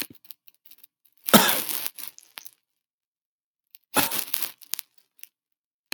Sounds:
Cough